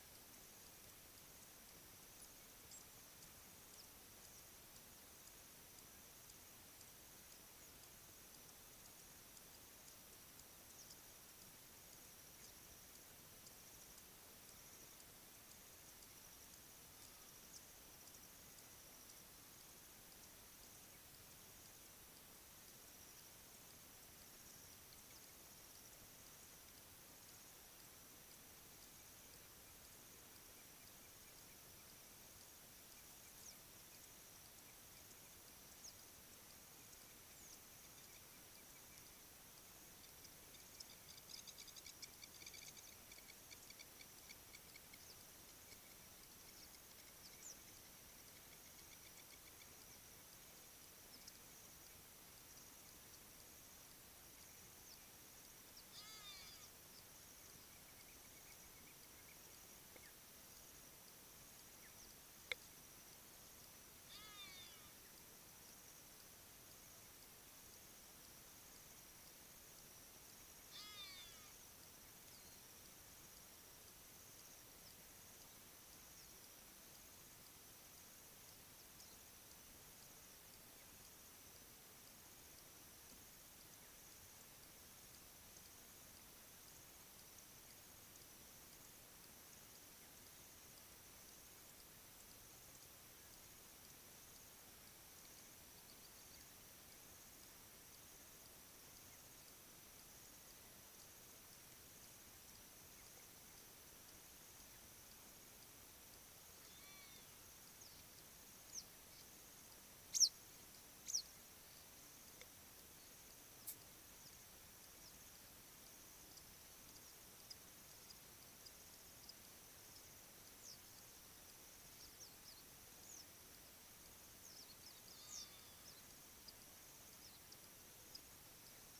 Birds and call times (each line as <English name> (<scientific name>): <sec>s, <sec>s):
Long-toed Lapwing (Vanellus crassirostris): 43.5s
Hadada Ibis (Bostrychia hagedash): 56.1s, 64.4s, 71.0s, 106.9s
Western Yellow Wagtail (Motacilla flava): 110.1s